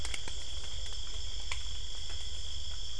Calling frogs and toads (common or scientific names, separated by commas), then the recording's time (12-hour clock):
none
6:00pm